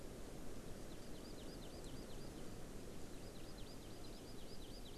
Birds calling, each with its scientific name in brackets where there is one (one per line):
Hawaii Amakihi (Chlorodrepanis virens)